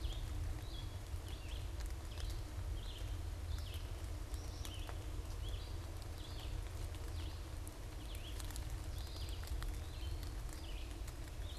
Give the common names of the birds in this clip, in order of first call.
Red-eyed Vireo, Eastern Wood-Pewee